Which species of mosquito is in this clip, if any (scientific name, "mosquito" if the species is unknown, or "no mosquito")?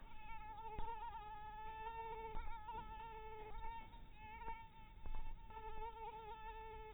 mosquito